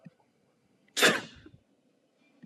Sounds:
Sneeze